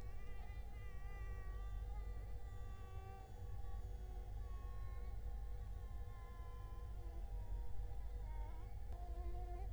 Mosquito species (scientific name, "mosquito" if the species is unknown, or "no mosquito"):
Culex quinquefasciatus